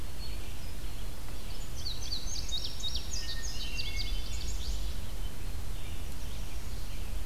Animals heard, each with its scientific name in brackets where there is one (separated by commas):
Indigo Bunting (Passerina cyanea), Hermit Thrush (Catharus guttatus), Red-eyed Vireo (Vireo olivaceus)